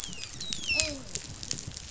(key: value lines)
label: biophony, dolphin
recorder: SoundTrap 500